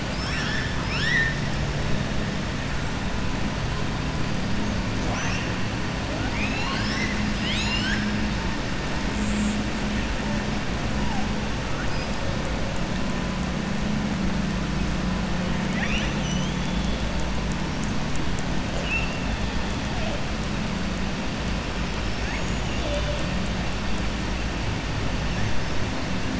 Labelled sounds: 0.0	1.4	killer whale, southern resident, 1.2 to 7.9 kHz
6.1	8.1	killer whale, southern resident, 0.73 to 7.9 kHz
15.6	17.0	killer whale, southern resident, 1.2 to 6.3 kHz
22.0	22.8	killer whale, southern resident, 4.7 to 7.7 kHz

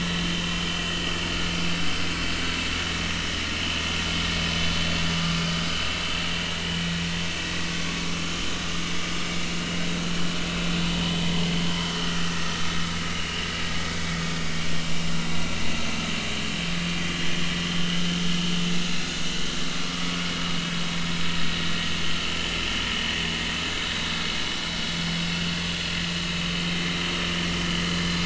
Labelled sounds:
11.7	11.9	vessel noise, 3.0 to 3.2 kHz
13.0	13.3	vessel noise, 1.2 to 1.5 kHz
21.3	21.7	vessel noise, 1.8 to 2.0 kHz
25.2	25.4	vessel noise, 2.6 to 2.8 kHz

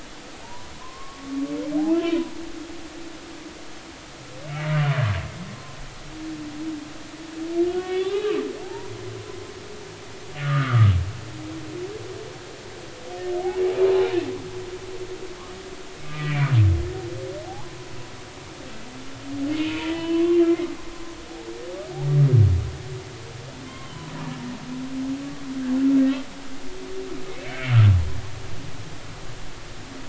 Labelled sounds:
0.4	1.3	humpback whale, 0.83 to 1.2 kHz
4.7	5.0	humpback whale, 2.8 to 3.0 kHz
7.6	8.9	humpback whale, 0.80 to 3.7 kHz
10.4	10.9	humpback whale, 1.1 to 1.6 kHz
16.1	16.5	humpback whale, 1.2 to 3.1 kHz
17.4	17.8	humpback whale, 0.80 to 1.1 kHz
19.6	20.7	humpback whale, 0.93 to 3.0 kHz
23.6	24.1	humpback whale, 0.99 to 3.2 kHz
27.4	27.7	humpback whale, 2.1 to 2.4 kHz

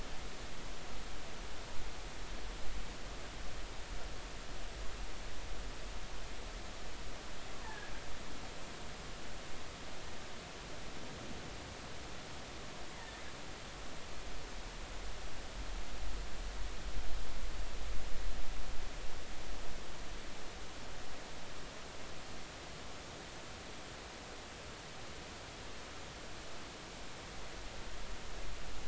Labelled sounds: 7.5	7.9	killer whale, offshore, 0.83 to 1.9 kHz

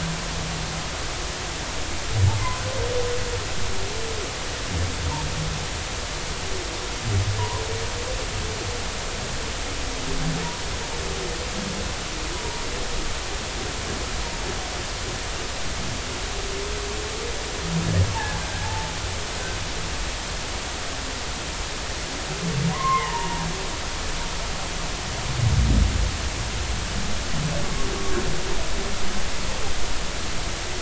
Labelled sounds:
7.4	7.6	humpback whale, 0.90 to 1.1 kHz
18.1	18.9	humpback whale, 0.80 to 1.7 kHz
22.7	23.5	humpback whale, 0.80 to 2.2 kHz

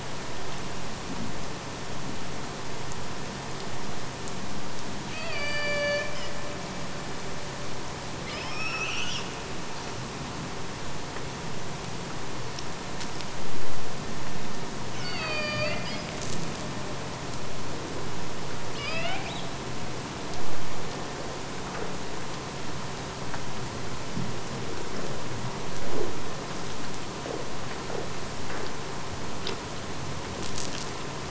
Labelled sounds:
5.1	6.5	killer whale, Bigg's (transient), AT1 transient, 0.46 to 6.6 kHz
14.8	16.1	killer whale, Bigg's (transient), AT1 transient, 0.51 to 5.3 kHz
18.7	19.6	killer whale, Bigg's (transient), AT1 transient, 0.51 to 5.5 kHz

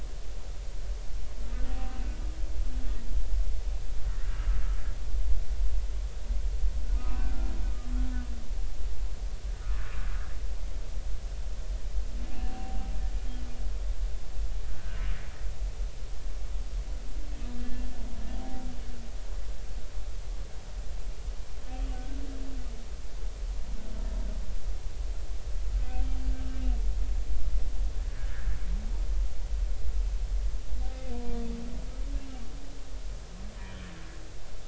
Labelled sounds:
4.0	4.3	humpback whale, 1.7 to 2.0 kHz
7.0	7.3	humpback whale, 2.4 to 2.7 kHz
12.4	12.8	humpback whale, 0.80 to 0.86 kHz
14.7	15.0	humpback whale, 1.4 to 1.7 kHz
17.6	17.8	humpback whale, 1.7 to 1.8 kHz
21.9	22.2	humpback whale, 1.4 to 1.6 kHz
31.1	31.4	humpback whale, 0.93 to 0.99 kHz

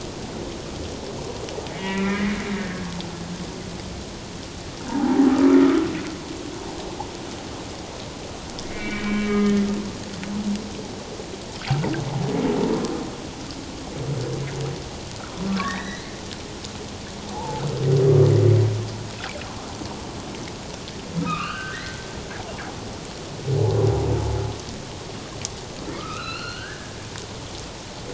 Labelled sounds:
1.7	2.5	humpback whale, 1.8 to 2.9 kHz
4.9	5.9	humpback whale, 0.78 to 1.4 kHz
8.7	9.6	humpback whale, 1.2 to 2.4 kHz
15.6	16.1	humpback whale, 1.5 to 6.0 kHz
17.3	17.6	humpback whale, 0.78 to 1.0 kHz
21.2	22.0	humpback whale, 1.1 to 3.1 kHz
26.0	27.0	humpback whale, 1.1 to 4.4 kHz

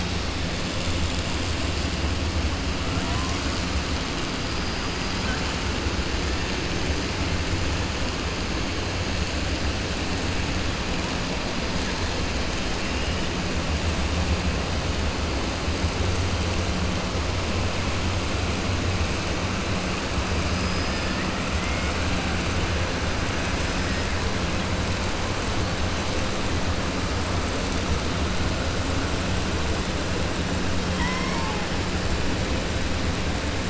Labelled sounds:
20.4	21.1	killer whale, 4.3 to 5.9 kHz

